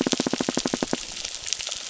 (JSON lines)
{"label": "biophony", "recorder": "SoundTrap 600"}
{"label": "biophony, crackle", "recorder": "SoundTrap 600"}